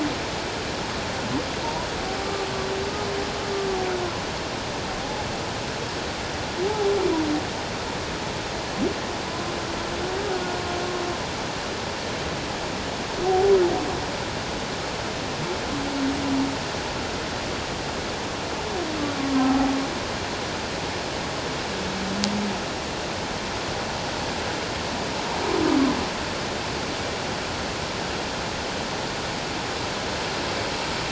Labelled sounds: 6.6	6.9	humpback whale, 0.78 to 0.91 kHz
13.3	13.5	humpback whale, 0.78 to 0.84 kHz

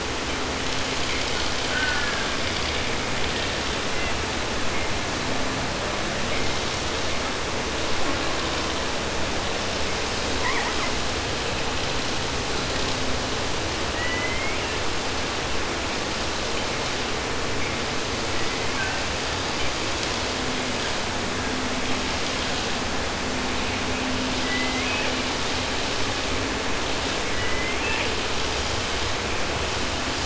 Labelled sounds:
1.6	2.4	killer whale, southern resident, J pod, call S04, 0.10 to 3.0 kHz
3.2	4.2	killer whale, southern resident, J pod, call S01, 1.1 to 4.1 kHz
10.3	11.0	killer whale, southern resident, 0.10 to 3.0 kHz
13.9	15.0	killer whale, southern resident, J pod, call S01, 0.10 to 4.1 kHz
18.3	19.2	killer whale, southern resident, J pod, call S01, 0.88 to 3.7 kHz
19.6	20.3	killer whale, 0.52 to 3.5 kHz
21.0	21.8	killer whale, 0.31 to 2.6 kHz
24.4	25.3	killer whale, southern resident, J pod, call S01, 0.10 to 3.0 kHz
27.2	28.3	killer whale, southern resident, J pod, call S01, 0.10 to 4.1 kHz

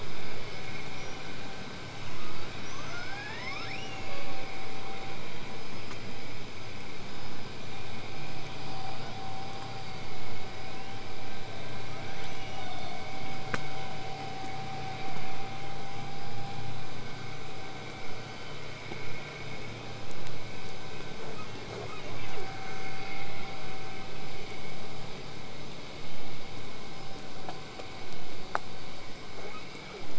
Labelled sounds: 1.9	4.6	killer whale, southern resident, L pod, call S19, 0.68 to 8.0 kHz
11.7	13.0	killer whale, southern resident, L pod, call S02iii, 0.77 to 8.0 kHz
14.0	19.0	vessel noise, 0 to 8.0 kHz
29.4	30.1	killer whale, southern resident, 0.12 to 3.0 kHz

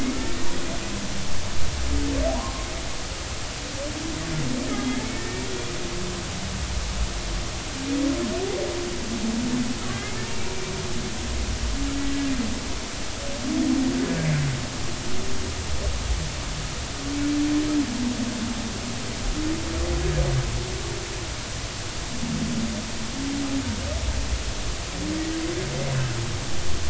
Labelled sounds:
2.3	2.7	humpback whale, 0.80 to 1.1 kHz
5.1	5.4	humpback whale, 1.8 to 1.9 kHz

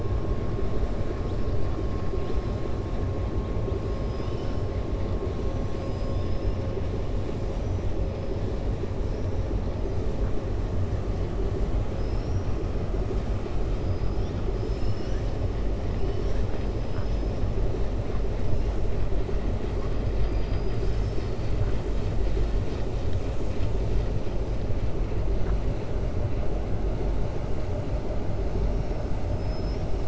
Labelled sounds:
3.8	4.6	killer whale, 2.1 to 6.2 kHz
5.6	6.6	killer whale, 2.9 to 5.9 kHz
7.4	7.8	killer whale, 5.2 to 6.8 kHz
16.0	16.5	killer whale, 1.5 to 3.8 kHz
16.8	17.3	killer whale, 4.2 to 5.9 kHz
29.3	29.9	killer whale, 5.1 to 5.7 kHz

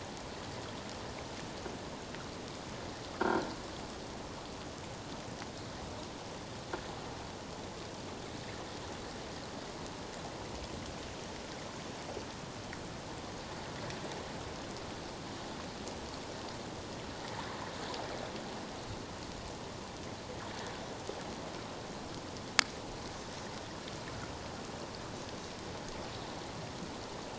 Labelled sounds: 3.1	3.5	croaking sound likely from a nearby submerged object, 1.2 to 1.7 kHz

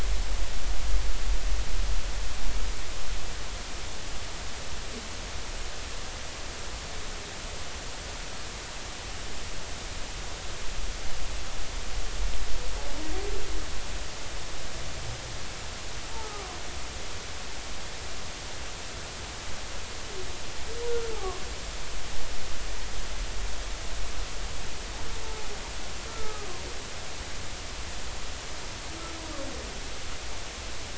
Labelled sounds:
16.2	16.5	humpback whale, 1.0 to 1.3 kHz
21.1	21.4	humpback whale, 1.0 to 1.3 kHz
26.1	26.5	humpback whale, 1.2 to 1.4 kHz

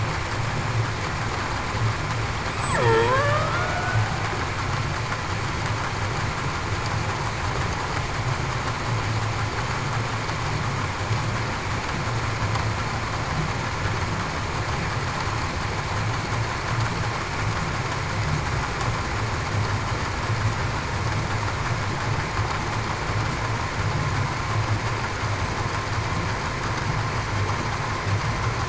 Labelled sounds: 2.7	4.1	killer whale, Bigg's (transient), 0.30 to 1.5 kHz

